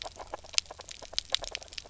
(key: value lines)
label: biophony, grazing
recorder: SoundTrap 300